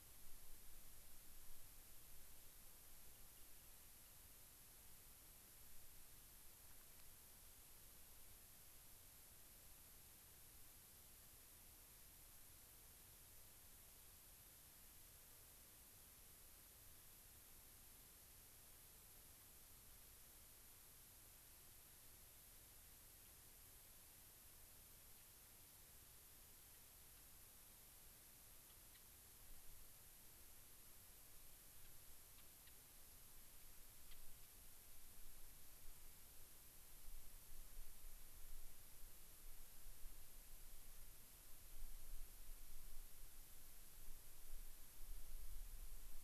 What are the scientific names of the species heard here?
Salpinctes obsoletus, Leucosticte tephrocotis